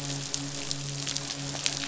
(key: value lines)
label: biophony, midshipman
recorder: SoundTrap 500